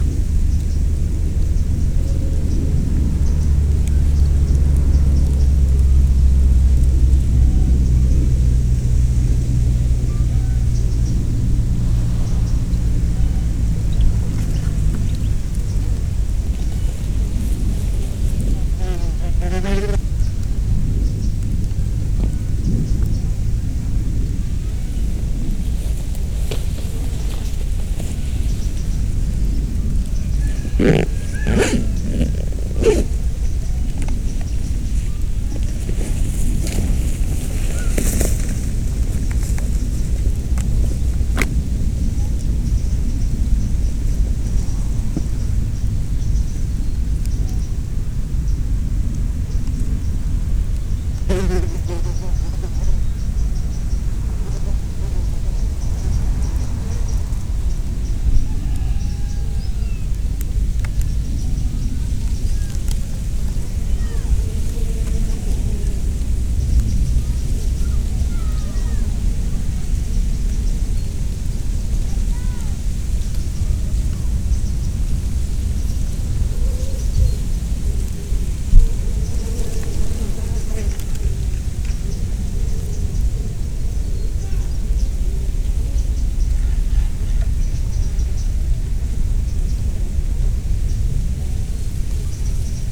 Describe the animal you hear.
Platycleis sabulosa, an orthopteran